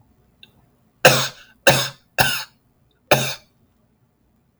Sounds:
Cough